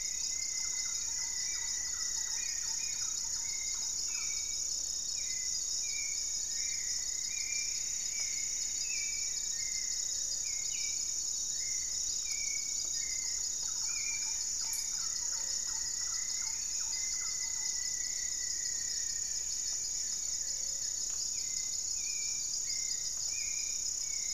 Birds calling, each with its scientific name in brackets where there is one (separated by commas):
Black-faced Antthrush (Formicarius analis), Hauxwell's Thrush (Turdus hauxwelli), Plumbeous Antbird (Myrmelastes hyperythrus), Rufous-fronted Antthrush (Formicarius rufifrons), Goeldi's Antbird (Akletos goeldii), Gray-fronted Dove (Leptotila rufaxilla), Thrush-like Wren (Campylorhynchus turdinus)